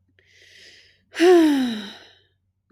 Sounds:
Sigh